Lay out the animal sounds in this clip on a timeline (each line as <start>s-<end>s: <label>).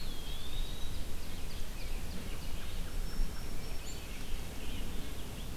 0.0s-1.1s: Eastern Wood-Pewee (Contopus virens)
0.2s-2.9s: Ovenbird (Seiurus aurocapilla)
1.7s-2.9s: American Robin (Turdus migratorius)
2.6s-4.6s: Black-throated Green Warbler (Setophaga virens)
3.5s-5.6s: Scarlet Tanager (Piranga olivacea)